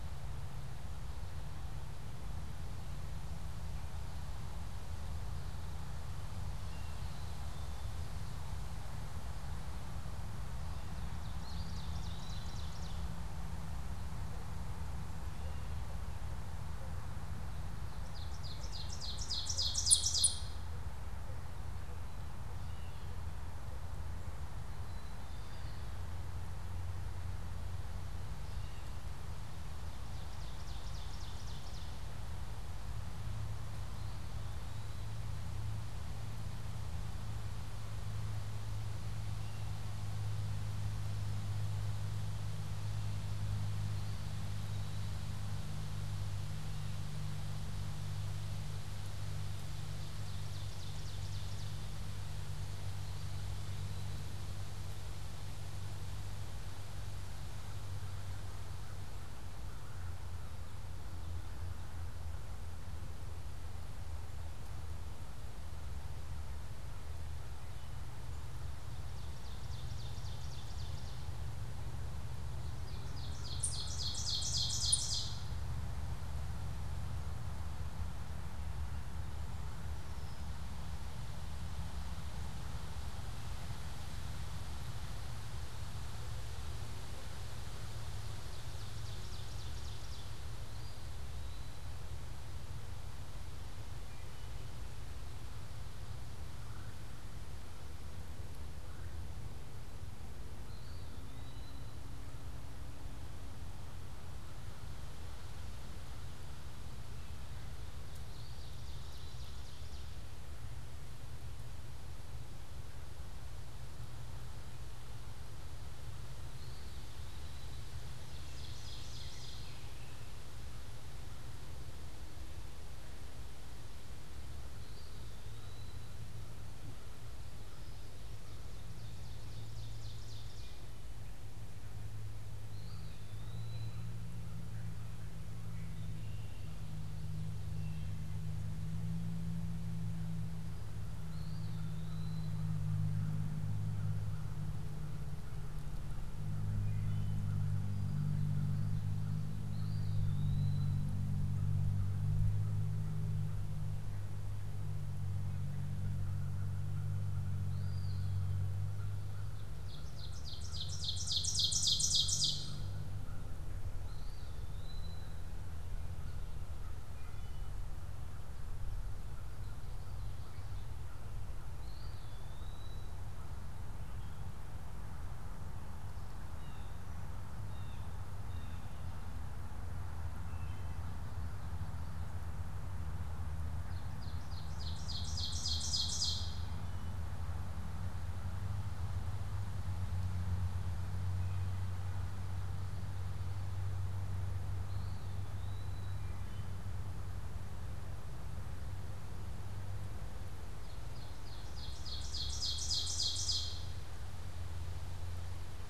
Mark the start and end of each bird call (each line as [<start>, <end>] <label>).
[6.50, 7.10] Gray Catbird (Dumetella carolinensis)
[6.80, 8.10] Black-capped Chickadee (Poecile atricapillus)
[10.50, 13.50] Ovenbird (Seiurus aurocapilla)
[17.70, 20.90] Ovenbird (Seiurus aurocapilla)
[22.40, 23.30] Gray Catbird (Dumetella carolinensis)
[24.60, 26.00] Black-capped Chickadee (Poecile atricapillus)
[25.30, 26.50] Eastern Wood-Pewee (Contopus virens)
[28.20, 29.10] Gray Catbird (Dumetella carolinensis)
[29.50, 32.20] Ovenbird (Seiurus aurocapilla)
[33.40, 35.60] Eastern Wood-Pewee (Contopus virens)
[39.10, 40.00] Gray Catbird (Dumetella carolinensis)
[43.60, 45.50] Eastern Wood-Pewee (Contopus virens)
[49.30, 52.10] Ovenbird (Seiurus aurocapilla)
[53.00, 54.50] Eastern Wood-Pewee (Contopus virens)
[68.80, 71.30] Ovenbird (Seiurus aurocapilla)
[72.50, 75.70] Ovenbird (Seiurus aurocapilla)
[79.90, 80.70] Red-winged Blackbird (Agelaius phoeniceus)
[88.00, 90.70] Ovenbird (Seiurus aurocapilla)
[90.50, 92.10] Eastern Wood-Pewee (Contopus virens)
[94.00, 94.70] Wood Thrush (Hylocichla mustelina)
[96.40, 99.40] Red-bellied Woodpecker (Melanerpes carolinus)
[100.40, 102.00] Eastern Wood-Pewee (Contopus virens)
[107.90, 110.20] Ovenbird (Seiurus aurocapilla)
[108.10, 109.50] Eastern Wood-Pewee (Contopus virens)
[116.20, 117.80] Eastern Wood-Pewee (Contopus virens)
[117.60, 120.20] Ovenbird (Seiurus aurocapilla)
[124.70, 126.20] Eastern Wood-Pewee (Contopus virens)
[128.30, 131.50] Ovenbird (Seiurus aurocapilla)
[132.30, 134.20] Eastern Wood-Pewee (Contopus virens)
[132.60, 135.90] American Crow (Corvus brachyrhynchos)
[135.60, 136.90] Red-winged Blackbird (Agelaius phoeniceus)
[137.60, 138.30] Wood Thrush (Hylocichla mustelina)
[140.80, 154.40] American Crow (Corvus brachyrhynchos)
[141.10, 142.80] Eastern Wood-Pewee (Contopus virens)
[149.60, 151.10] Eastern Wood-Pewee (Contopus virens)
[157.20, 176.90] American Crow (Corvus brachyrhynchos)
[157.50, 158.50] Eastern Wood-Pewee (Contopus virens)
[159.50, 163.20] Ovenbird (Seiurus aurocapilla)
[164.00, 165.70] Eastern Wood-Pewee (Contopus virens)
[167.00, 167.80] Wood Thrush (Hylocichla mustelina)
[171.40, 173.40] Eastern Wood-Pewee (Contopus virens)
[176.20, 179.00] Blue Jay (Cyanocitta cristata)
[180.30, 181.10] Wood Thrush (Hylocichla mustelina)
[183.80, 187.00] Ovenbird (Seiurus aurocapilla)
[191.10, 197.10] Wood Thrush (Hylocichla mustelina)
[194.60, 196.70] Eastern Wood-Pewee (Contopus virens)
[200.80, 204.40] Ovenbird (Seiurus aurocapilla)